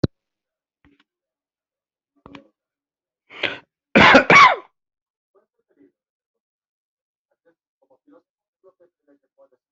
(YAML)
expert_labels:
- quality: ok
  cough_type: unknown
  dyspnea: false
  wheezing: false
  stridor: false
  choking: false
  congestion: false
  nothing: true
  diagnosis: COVID-19
  severity: mild
gender: female
respiratory_condition: false
fever_muscle_pain: false
status: COVID-19